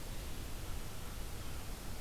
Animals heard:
forest ambience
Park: Marsh-Billings-Rockefeller National Historical Park